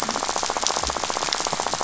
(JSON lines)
{"label": "biophony, rattle", "recorder": "SoundTrap 500"}